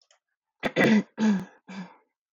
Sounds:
Throat clearing